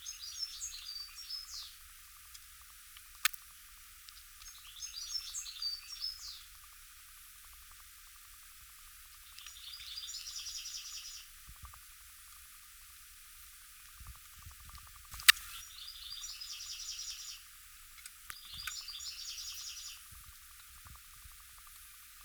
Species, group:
Poecilimon jonicus, Orthoptera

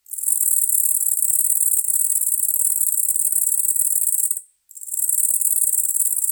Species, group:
Calliphona koenigi, Orthoptera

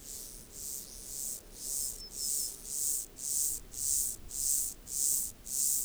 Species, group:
Myrmeleotettix maculatus, Orthoptera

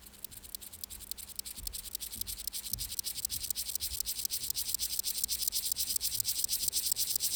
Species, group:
Chorthippus apricarius, Orthoptera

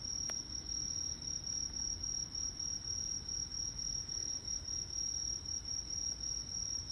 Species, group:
Truljalia hibinonis, Orthoptera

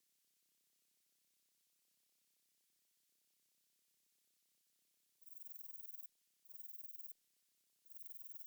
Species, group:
Rhacocleis lithoscirtetes, Orthoptera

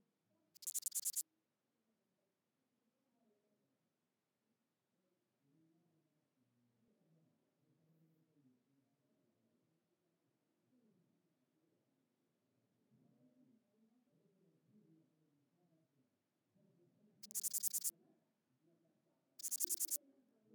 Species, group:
Sorapagus catalaunicus, Orthoptera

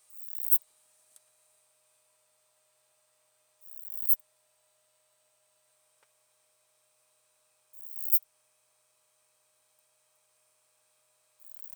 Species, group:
Poecilimon obesus, Orthoptera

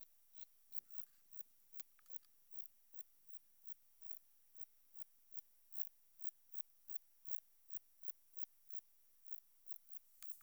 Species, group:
Metrioptera saussuriana, Orthoptera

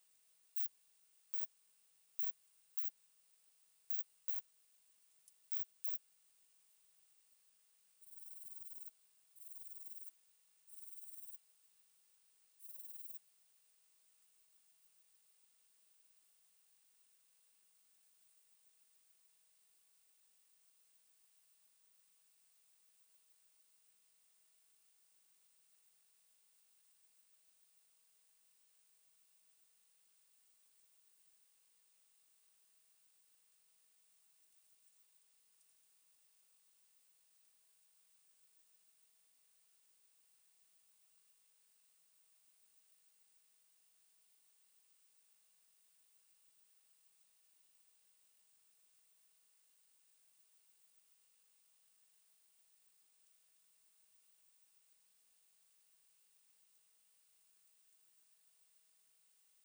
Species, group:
Poecilimon veluchianus, Orthoptera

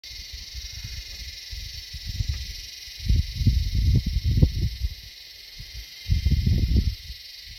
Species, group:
Psaltoda harrisii, Cicadidae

